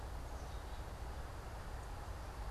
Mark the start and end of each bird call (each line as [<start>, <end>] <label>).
[0.00, 2.50] Black-capped Chickadee (Poecile atricapillus)